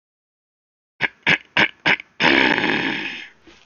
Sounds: Throat clearing